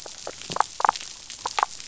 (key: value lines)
label: biophony, damselfish
recorder: SoundTrap 500